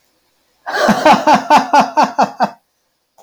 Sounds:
Laughter